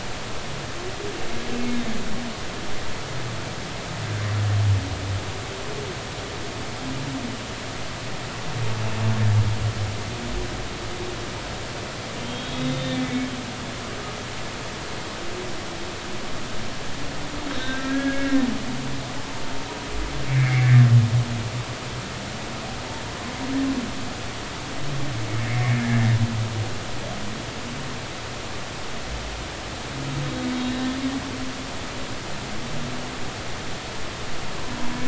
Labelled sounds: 1.6	1.9	humpback whale, 2.0 to 2.2 kHz
12.2	13.3	humpback whale, 2.2 to 3.8 kHz
17.5	18.5	humpback whale, 1.3 to 4.0 kHz
20.3	20.7	humpback whale, 2.0 to 2.4 kHz
25.4	26.1	humpback whale, 1.6 to 2.3 kHz
30.5	31.0	humpback whale, 1.8 to 4.0 kHz

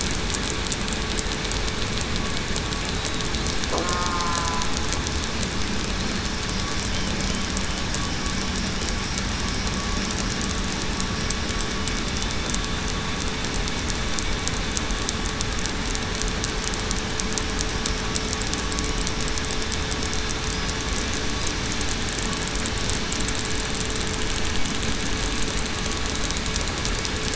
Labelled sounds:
3.8	4.3	killer whale, southern resident, 1.2 to 1.3 kHz

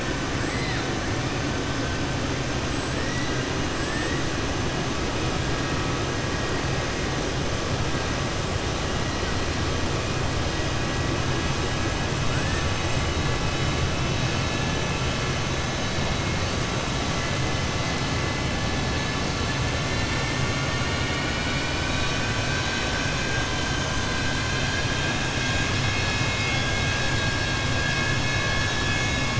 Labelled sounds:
0.4	0.8	killer whale, southern resident, 1.4 to 4.9 kHz

